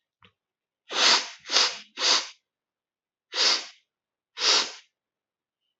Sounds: Sniff